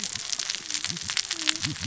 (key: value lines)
label: biophony, cascading saw
recorder: SoundTrap 600 or HydroMoth